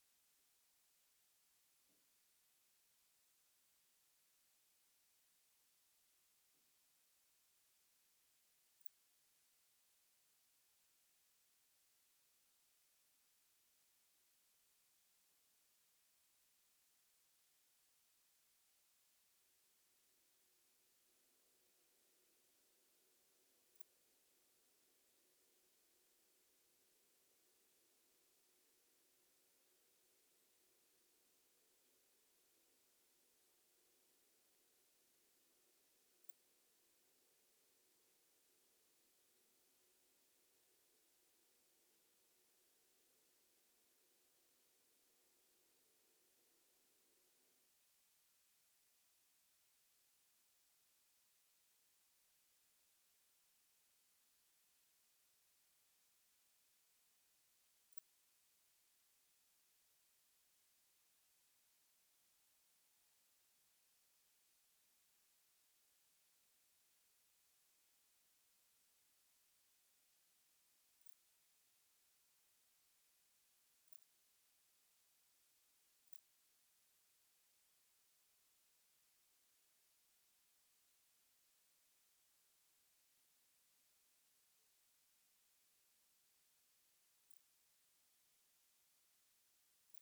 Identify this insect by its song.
Poecilimon ikariensis, an orthopteran